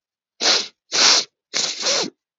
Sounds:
Sniff